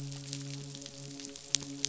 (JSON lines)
{"label": "biophony, midshipman", "recorder": "SoundTrap 500"}